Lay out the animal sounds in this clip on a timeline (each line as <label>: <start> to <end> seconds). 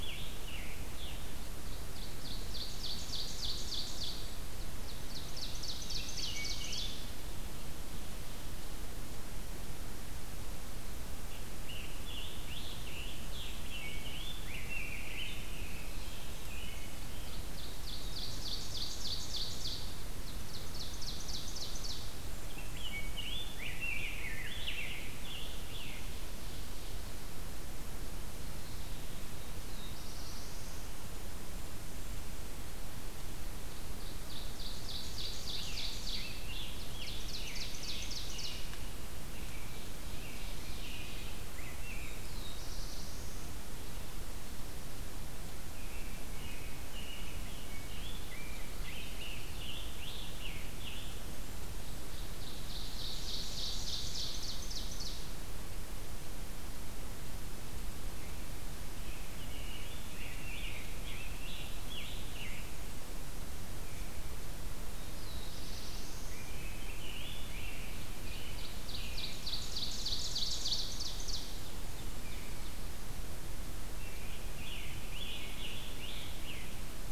Scarlet Tanager (Piranga olivacea): 0.0 to 1.2 seconds
Ovenbird (Seiurus aurocapilla): 1.0 to 4.2 seconds
Ovenbird (Seiurus aurocapilla): 4.5 to 7.2 seconds
Rose-breasted Grosbeak (Pheucticus ludovicianus): 5.3 to 7.5 seconds
Scarlet Tanager (Piranga olivacea): 10.9 to 13.6 seconds
Rose-breasted Grosbeak (Pheucticus ludovicianus): 13.5 to 15.8 seconds
American Robin (Turdus migratorius): 15.3 to 17.5 seconds
Ovenbird (Seiurus aurocapilla): 17.0 to 22.1 seconds
Rose-breasted Grosbeak (Pheucticus ludovicianus): 22.3 to 24.6 seconds
Scarlet Tanager (Piranga olivacea): 24.1 to 26.0 seconds
Black-throated Blue Warbler (Setophaga caerulescens): 29.5 to 31.0 seconds
Ovenbird (Seiurus aurocapilla): 33.7 to 38.7 seconds
Scarlet Tanager (Piranga olivacea): 35.0 to 38.8 seconds
American Robin (Turdus migratorius): 39.1 to 41.3 seconds
Ovenbird (Seiurus aurocapilla): 39.4 to 41.4 seconds
Rose-breasted Grosbeak (Pheucticus ludovicianus): 41.2 to 42.3 seconds
Black-throated Blue Warbler (Setophaga caerulescens): 41.9 to 43.8 seconds
American Robin (Turdus migratorius): 45.5 to 47.4 seconds
Rose-breasted Grosbeak (Pheucticus ludovicianus): 47.2 to 49.2 seconds
Scarlet Tanager (Piranga olivacea): 48.7 to 51.6 seconds
Ovenbird (Seiurus aurocapilla): 52.0 to 55.3 seconds
American Robin (Turdus migratorius): 58.7 to 60.5 seconds
Scarlet Tanager (Piranga olivacea): 59.7 to 63.2 seconds
Black-throated Blue Warbler (Setophaga caerulescens): 65.0 to 66.6 seconds
American Robin (Turdus migratorius): 65.8 to 69.4 seconds
Rose-breasted Grosbeak (Pheucticus ludovicianus): 66.6 to 68.5 seconds
Ovenbird (Seiurus aurocapilla): 67.7 to 71.9 seconds
Scarlet Tanager (Piranga olivacea): 73.8 to 76.7 seconds